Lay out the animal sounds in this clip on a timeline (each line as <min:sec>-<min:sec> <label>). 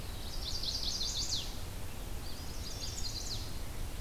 0:00.0-0:01.7 Chestnut-sided Warbler (Setophaga pensylvanica)
0:02.0-0:03.6 Eastern Wood-Pewee (Contopus virens)
0:02.1-0:03.5 Chestnut-sided Warbler (Setophaga pensylvanica)